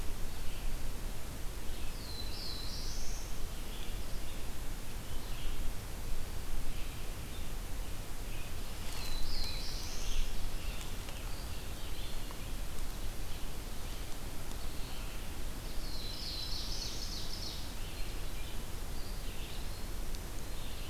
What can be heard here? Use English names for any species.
Black-throated Blue Warbler, Scarlet Tanager, Eastern Wood-Pewee, Ovenbird